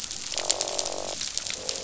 {"label": "biophony, croak", "recorder": "SoundTrap 500"}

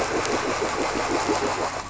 {"label": "anthrophony, boat engine", "recorder": "SoundTrap 500"}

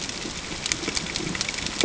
{"label": "ambient", "recorder": "HydroMoth"}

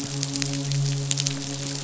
{"label": "biophony, midshipman", "recorder": "SoundTrap 500"}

